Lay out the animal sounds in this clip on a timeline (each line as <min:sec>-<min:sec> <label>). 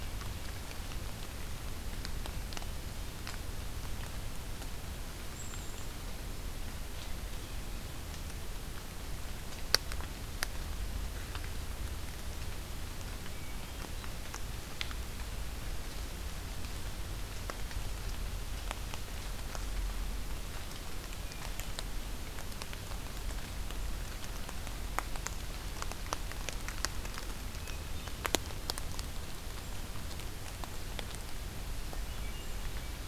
0:05.2-0:05.9 Black-capped Chickadee (Poecile atricapillus)
0:13.3-0:14.2 Hermit Thrush (Catharus guttatus)
0:27.5-0:28.4 Hermit Thrush (Catharus guttatus)
0:32.1-0:33.1 Hermit Thrush (Catharus guttatus)